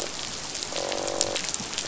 {"label": "biophony, croak", "recorder": "SoundTrap 500"}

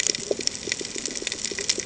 {"label": "ambient", "recorder": "HydroMoth"}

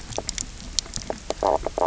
{"label": "biophony, knock croak", "recorder": "SoundTrap 300"}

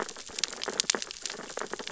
{"label": "biophony, sea urchins (Echinidae)", "recorder": "SoundTrap 600 or HydroMoth"}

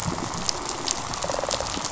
{"label": "biophony, rattle response", "recorder": "SoundTrap 500"}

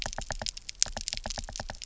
{"label": "biophony, knock", "recorder": "SoundTrap 300"}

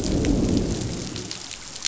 {"label": "biophony, growl", "recorder": "SoundTrap 500"}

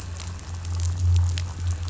{"label": "anthrophony, boat engine", "recorder": "SoundTrap 500"}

